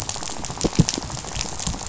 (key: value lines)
label: biophony, rattle
recorder: SoundTrap 500